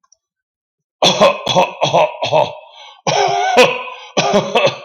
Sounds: Cough